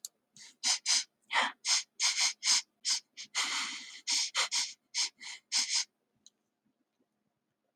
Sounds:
Sniff